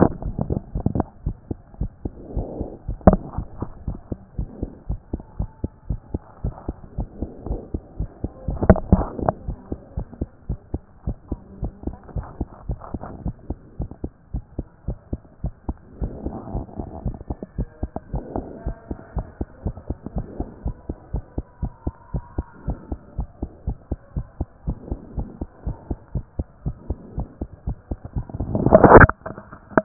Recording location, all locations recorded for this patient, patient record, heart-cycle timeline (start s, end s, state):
pulmonary valve (PV)
aortic valve (AV)+pulmonary valve (PV)+tricuspid valve (TV)+mitral valve (MV)
#Age: Child
#Sex: Male
#Height: 93.0 cm
#Weight: 14.8 kg
#Pregnancy status: False
#Murmur: Absent
#Murmur locations: nan
#Most audible location: nan
#Systolic murmur timing: nan
#Systolic murmur shape: nan
#Systolic murmur grading: nan
#Systolic murmur pitch: nan
#Systolic murmur quality: nan
#Diastolic murmur timing: nan
#Diastolic murmur shape: nan
#Diastolic murmur grading: nan
#Diastolic murmur pitch: nan
#Diastolic murmur quality: nan
#Outcome: Abnormal
#Campaign: 2014 screening campaign
0.00	9.68	unannotated
9.68	9.78	S2
9.78	9.94	diastole
9.94	10.08	S1
10.08	10.18	systole
10.18	10.28	S2
10.28	10.46	diastole
10.46	10.58	S1
10.58	10.70	systole
10.70	10.84	S2
10.84	11.04	diastole
11.04	11.16	S1
11.16	11.28	systole
11.28	11.42	S2
11.42	11.60	diastole
11.60	11.74	S1
11.74	11.84	systole
11.84	11.98	S2
11.98	12.14	diastole
12.14	12.26	S1
12.26	12.38	systole
12.38	12.48	S2
12.48	12.66	diastole
12.66	12.80	S1
12.80	12.92	systole
12.92	13.02	S2
13.02	13.20	diastole
13.20	13.34	S1
13.34	13.48	systole
13.48	13.58	S2
13.58	13.78	diastole
13.78	13.90	S1
13.90	14.02	systole
14.02	14.12	S2
14.12	14.32	diastole
14.32	14.42	S1
14.42	14.56	systole
14.56	14.66	S2
14.66	14.86	diastole
14.86	14.98	S1
14.98	15.10	systole
15.10	15.20	S2
15.20	15.42	diastole
15.42	15.54	S1
15.54	15.66	systole
15.66	15.80	S2
15.80	16.00	diastole
16.00	16.14	S1
16.14	16.24	systole
16.24	16.36	S2
16.36	16.52	diastole
16.52	16.66	S1
16.66	16.76	systole
16.76	16.86	S2
16.86	17.04	diastole
17.04	17.16	S1
17.16	17.28	systole
17.28	17.38	S2
17.38	17.56	diastole
17.56	17.68	S1
17.68	17.80	systole
17.80	17.90	S2
17.90	18.12	diastole
18.12	18.24	S1
18.24	18.36	systole
18.36	18.46	S2
18.46	18.64	diastole
18.64	18.78	S1
18.78	18.88	systole
18.88	18.98	S2
18.98	19.14	diastole
19.14	19.28	S1
19.28	19.38	systole
19.38	19.48	S2
19.48	19.64	diastole
19.64	19.76	S1
19.76	19.88	systole
19.88	19.98	S2
19.98	20.14	diastole
20.14	20.28	S1
20.28	20.38	systole
20.38	20.48	S2
20.48	20.64	diastole
20.64	20.78	S1
20.78	20.90	systole
20.90	20.98	S2
20.98	21.12	diastole
21.12	21.26	S1
21.26	21.36	systole
21.36	21.46	S2
21.46	21.60	diastole
21.60	21.74	S1
21.74	21.84	systole
21.84	21.94	S2
21.94	22.12	diastole
22.12	22.24	S1
22.24	22.36	systole
22.36	22.48	S2
22.48	22.66	diastole
22.66	22.80	S1
22.80	22.90	systole
22.90	23.00	S2
23.00	23.16	diastole
23.16	23.28	S1
23.28	23.40	systole
23.40	23.50	S2
23.50	23.66	diastole
23.66	23.76	S1
23.76	23.90	systole
23.90	24.00	S2
24.00	24.14	diastole
24.14	24.26	S1
24.26	24.38	systole
24.38	24.48	S2
24.48	24.66	diastole
24.66	24.80	S1
24.80	24.90	systole
24.90	25.00	S2
25.00	25.16	diastole
25.16	25.30	S1
25.30	25.40	systole
25.40	25.50	S2
25.50	25.64	diastole
25.64	25.78	S1
25.78	25.88	systole
25.88	25.98	S2
25.98	26.14	diastole
26.14	26.26	S1
26.26	26.40	systole
26.40	26.48	S2
26.48	26.64	diastole
26.64	26.76	S1
26.76	26.88	systole
26.88	26.98	S2
26.98	27.16	diastole
27.16	27.30	S1
27.30	27.40	systole
27.40	29.84	unannotated